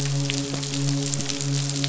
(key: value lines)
label: biophony, midshipman
recorder: SoundTrap 500